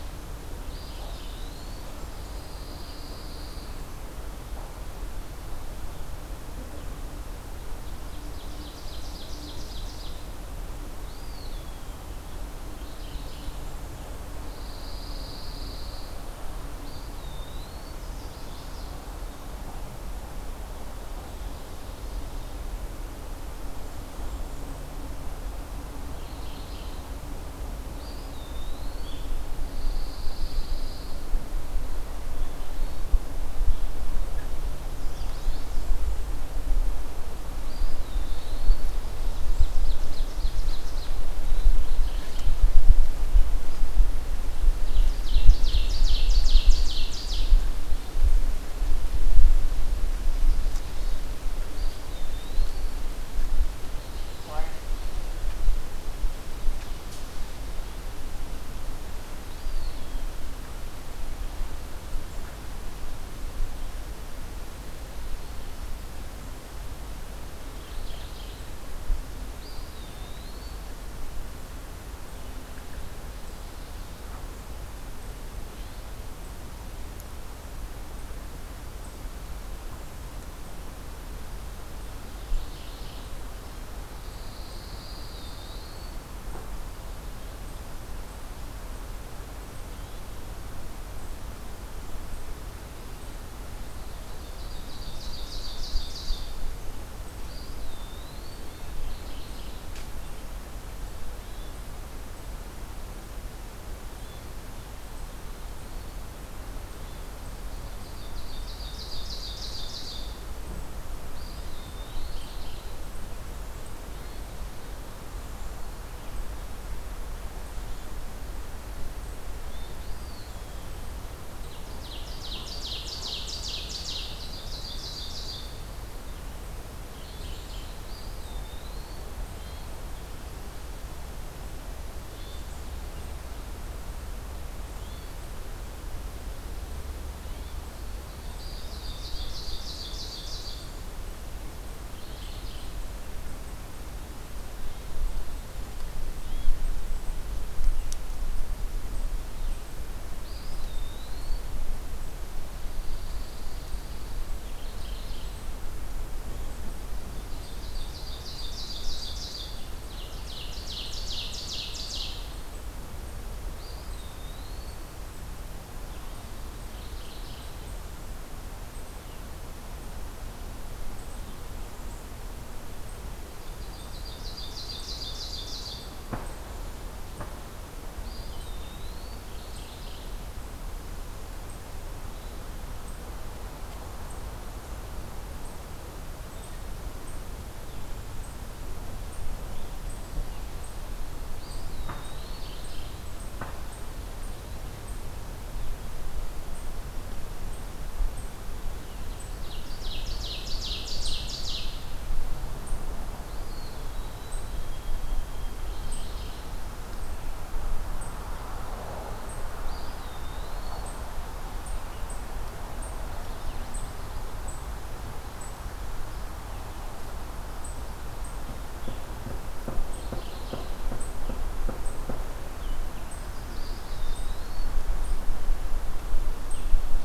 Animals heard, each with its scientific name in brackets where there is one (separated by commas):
Magnolia Warbler (Setophaga magnolia), Pine Warbler (Setophaga pinus), Mourning Warbler (Geothlypis philadelphia), Ovenbird (Seiurus aurocapilla), White-throated Sparrow (Zonotrichia albicollis), Eastern Wood-Pewee (Contopus virens), Hermit Thrush (Catharus guttatus), Blackburnian Warbler (Setophaga fusca), Chestnut-sided Warbler (Setophaga pensylvanica)